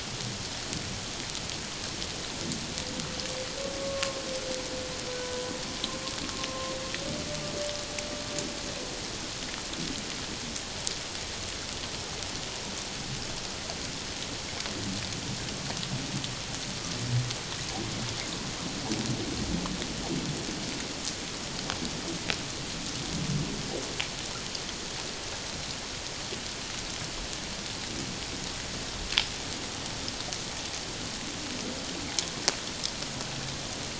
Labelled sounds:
3.8	4.2	humpback whale, 1.0 to 1.2 kHz
5.1	5.5	humpback whale, 0.94 to 1.5 kHz
6.5	6.7	humpback whale, 1.0 to 1.1 kHz

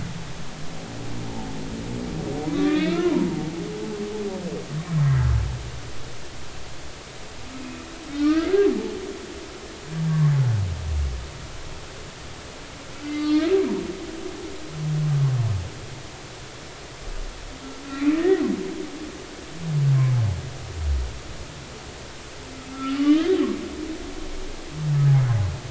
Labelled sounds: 2.5	3.3	humpback whale, 0.90 to 4.1 kHz
7.6	8.5	humpback whale, 1.1 to 2.6 kHz
13.0	13.5	humpback whale, 1.2 to 4.8 kHz
17.9	18.4	humpback whale, 1.8 to 2.6 kHz
22.7	23.3	humpback whale, 1.1 to 3.3 kHz

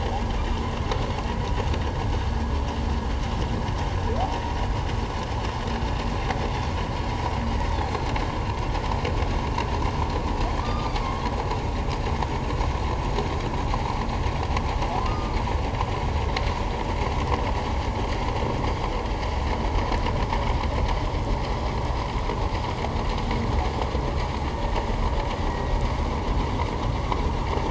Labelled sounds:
7.8	8.1	humpback whale, 4.0 to 4.3 kHz
10.6	11.2	humpback whale, 1.1 to 4.9 kHz
15.0	15.4	humpback whale, 1.2 to 1.3 kHz
25.5	25.7	humpback whale, 1.8 to 2.0 kHz

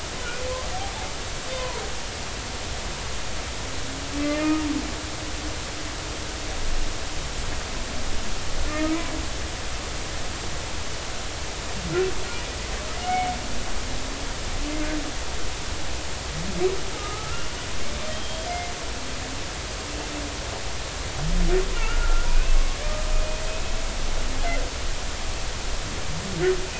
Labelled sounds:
1.5	1.8	humpback whale, 0.90 to 1.1 kHz
4.2	4.6	humpback whale, 2.0 to 2.5 kHz
8.7	9.0	humpback whale, 1.2 to 1.9 kHz
17.0	17.6	humpback whale, 1.2 to 1.5 kHz
18.1	18.5	humpback whale, 3.1 to 3.3 kHz
21.7	22.6	humpback whale, 1.3 to 2.7 kHz
22.8	23.8	humpback whale, 1.2 to 2.6 kHz

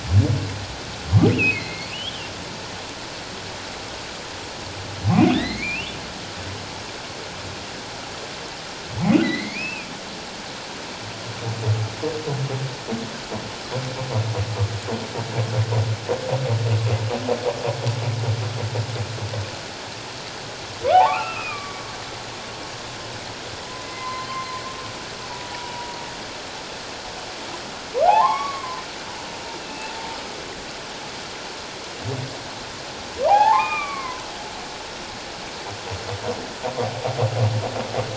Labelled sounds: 1.3	2.3	humpback whale, 1.9 to 4.6 kHz
5.3	6.0	humpback whale, 1.6 to 4.4 kHz
9.2	9.9	humpback whale, 1.9 to 4.3 kHz
20.8	21.8	humpback whale, 0.78 to 2.8 kHz
23.8	24.3	humpback whale, 0.97 to 4.2 kHz
25.5	26.0	humpback whale, 0.84 to 1.0 kHz
28.0	28.8	humpback whale, 0.78 to 2.3 kHz
29.6	29.9	humpback whale, 2.5 to 2.7 kHz
33.3	34.3	humpback whale, 0.78 to 2.6 kHz

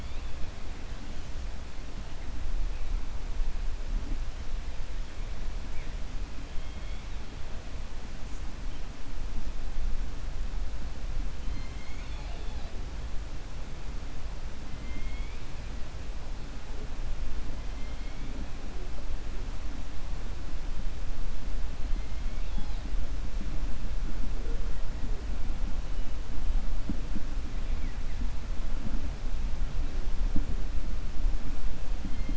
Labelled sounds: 11.4	12.7	killer whale, 0.65 to 5.2 kHz
14.7	15.4	killer whale, 2.1 to 3.4 kHz
22.0	22.8	killer whale, 2.2 to 5.1 kHz

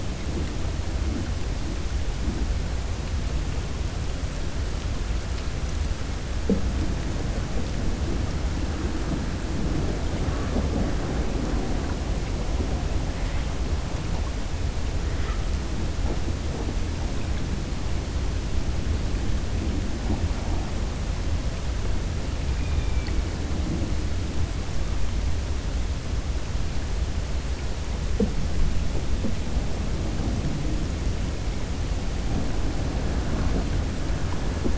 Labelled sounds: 22.5	23.2	killer whale, 1.9 to 3.7 kHz

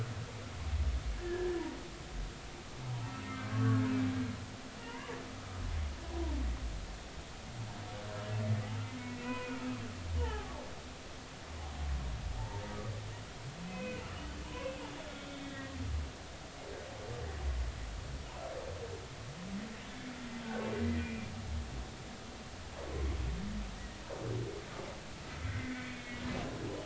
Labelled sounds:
1.1	1.5	humpback whale, 1.6 to 1.8 kHz
3.2	3.8	humpback whale, 1.1 to 2.2 kHz
4.8	5.6	humpback whale, 0.86 to 2.1 kHz
9.0	9.6	humpback whale, 0.96 to 2.6 kHz
10.2	10.6	humpback whale, 0.80 to 2.0 kHz
12.4	12.6	humpback whale, 0.83 to 0.96 kHz
13.6	14.7	humpback whale, 0.86 to 3.1 kHz
15.1	15.7	humpback whale, 1.8 to 3.7 kHz
21.0	21.3	humpback whale, 2.3 to 2.5 kHz
25.5	26.2	humpback whale, 1.7 to 2.2 kHz

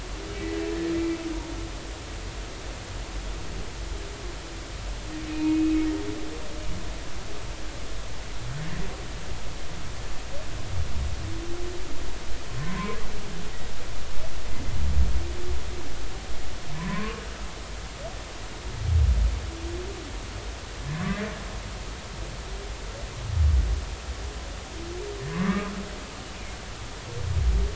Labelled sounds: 5.3	5.8	humpback whale, 2.4 to 2.6 kHz
12.6	13.0	humpback whale, 0.96 to 1.2 kHz
16.7	17.2	humpback whale, 0.96 to 2.4 kHz
20.9	21.2	humpback whale, 0.99 to 1.2 kHz
25.3	25.7	humpback whale, 0.96 to 2.3 kHz

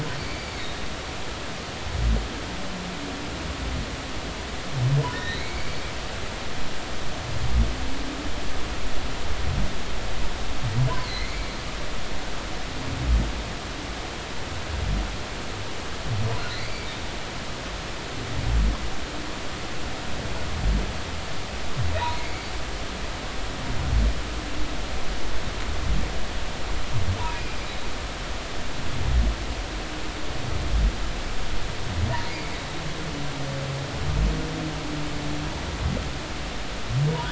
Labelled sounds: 0.2	0.5	humpback whale, 2.2 to 4.7 kHz
5.1	5.8	humpback whale, 1.7 to 4.2 kHz
11.0	11.5	humpback whale, 2.0 to 4.3 kHz
16.5	16.9	humpback whale, 1.7 to 4.7 kHz
27.4	27.7	humpback whale, 4.7 to 4.9 kHz
32.3	32.6	humpback whale, 2.0 to 2.4 kHz
37.1	37.3	humpback whale, 0.90 to 1.1 kHz

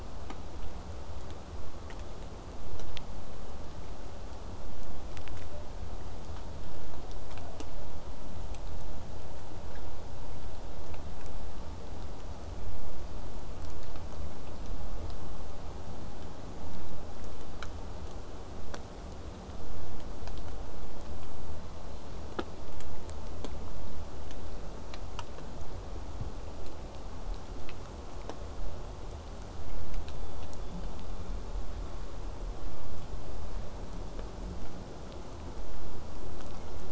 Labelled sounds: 21.5	22.3	killer whale, southern resident, J pod, 1.7 to 4.7 kHz
30.0	31.6	killer whale, southern resident, J pod, 2.2 to 4.9 kHz

